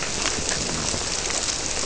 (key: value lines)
label: biophony
recorder: SoundTrap 300